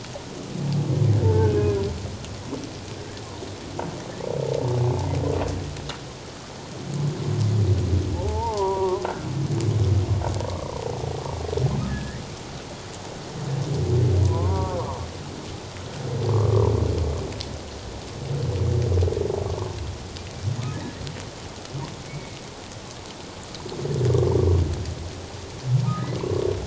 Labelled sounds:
1.2	1.8	humpback whale, 0.84 to 2.6 kHz
8.1	9.1	humpback whale, 0.78 to 1.2 kHz
11.9	12.2	humpback whale, 1.6 to 2.1 kHz
14.2	14.8	humpback whale, 0.81 to 1.2 kHz
19.5	19.7	humpback whale, 1.0 to 1.2 kHz
22.1	22.4	humpback whale, 2.1 to 2.4 kHz
25.9	26.1	humpback whale, 1.2 to 1.3 kHz

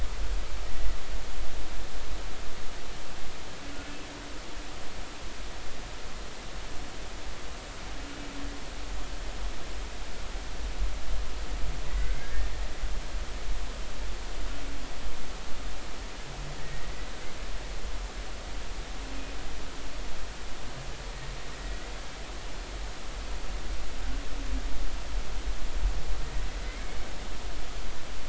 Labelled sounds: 11.9	12.3	humpback whale, 1.9 to 2.2 kHz
16.6	16.9	humpback whale, 1.8 to 2.0 kHz
26.6	27.0	humpback whale, 2.0 to 2.2 kHz

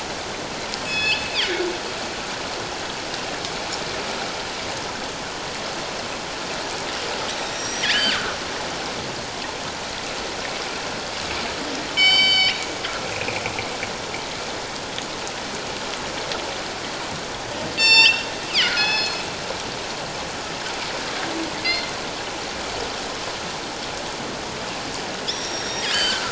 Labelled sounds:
0.8	1.3	killer whale, northern resident, G clan, call N24i, 1.7 to 5.2 kHz
7.4	8.4	killer whale, northern resident, G clan, call N23i, 1.1 to 7.8 kHz
11.9	12.6	killer whale, northern resident, G clan, call N24i, 2.2 to 7.7 kHz
17.8	19.2	killer whale, northern resident, G clan, call N24i, 0.84 to 8.0 kHz
21.6	21.9	killer whale, northern resident, G clan, call N24ii, 2.0 to 4.3 kHz
25.3	26.2	killer whale, northern resident, G clan, call N23i, 2.8 to 5.9 kHz

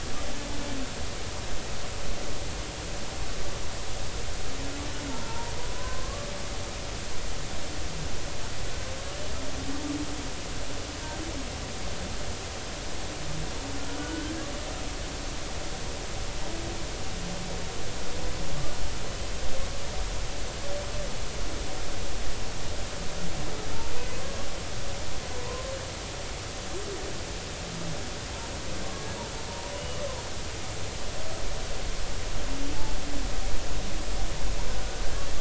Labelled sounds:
5.3	6.3	humpback whale, 0.86 to 1.2 kHz
14.0	14.4	humpback whale, 1.4 to 1.6 kHz
25.4	25.7	humpback whale, 0.93 to 1.1 kHz
29.7	30.0	humpback whale, 2.8 to 3.0 kHz
34.8	35.0	humpback whale, 1.4 to 1.6 kHz

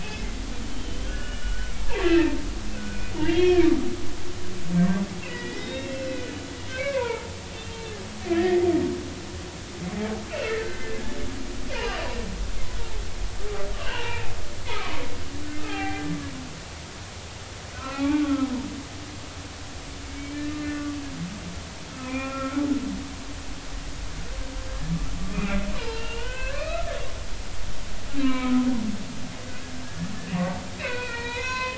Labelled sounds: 0.0	1.7	humpback whale, 1.4 to 3.2 kHz
2.0	3.7	humpback whale, 1.4 to 3.3 kHz
5.2	6.3	humpback whale, 1.9 to 3.8 kHz
6.7	7.8	humpback whale, 0.86 to 3.7 kHz
8.3	8.7	humpback whale, 1.6 to 2.1 kHz
10.6	10.9	humpback whale, 1.5 to 1.6 kHz
11.7	12.0	humpback whale, 2.7 to 3.0 kHz
13.8	15.0	humpback whale, 0.83 to 3.0 kHz
15.5	16.1	humpback whale, 0.80 to 2.6 kHz
17.8	18.7	humpback whale, 0.80 to 2.4 kHz
20.2	20.9	humpback whale, 1.4 to 2.7 kHz
22.0	22.6	humpback whale, 0.96 to 2.5 kHz
25.3	26.9	humpback whale, 0.83 to 5.1 kHz
28.2	28.6	humpback whale, 0.96 to 4.0 kHz
29.8	31.7	humpback whale, 0.90 to 4.5 kHz

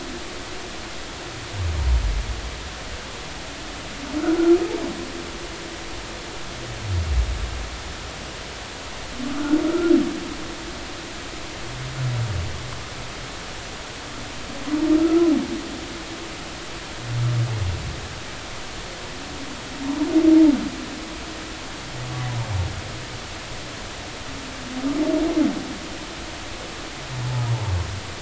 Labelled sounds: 15.0	15.3	humpback whale, 1.3 to 1.4 kHz

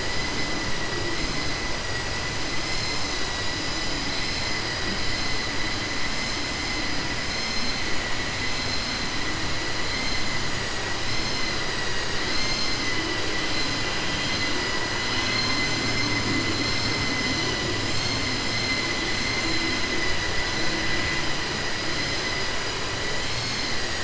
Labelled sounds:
15.0	15.5	vessel noise, 1.6 to 4.4 kHz

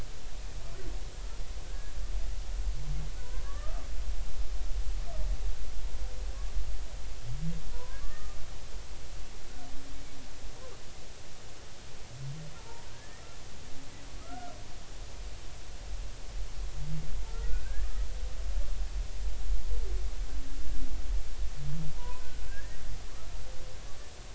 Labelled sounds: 1.6	1.9	humpback whale, 1.5 to 1.7 kHz
3.4	3.9	humpback whale, 1.1 to 1.9 kHz
7.7	8.4	humpback whale, 0.93 to 1.3 kHz
12.6	13.3	humpback whale, 0.83 to 2.0 kHz
14.2	14.6	humpback whale, 1.2 to 1.6 kHz
17.3	17.9	humpback whale, 1.3 to 2.7 kHz
21.9	22.8	humpback whale, 0.93 to 2.0 kHz
23.1	23.4	humpback whale, 1.1 to 1.4 kHz

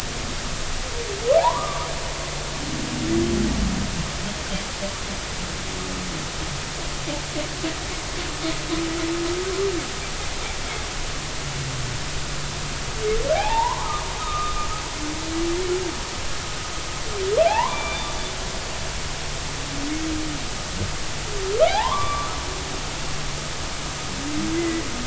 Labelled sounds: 1.4	1.9	humpback whale, 0.80 to 1.3 kHz
13.3	14.7	humpback whale, 0.80 to 1.3 kHz
17.5	18.1	humpback whale, 0.80 to 3.6 kHz
21.7	22.3	humpback whale, 0.80 to 2.4 kHz
24.5	24.9	humpback whale, 1.9 to 2.1 kHz

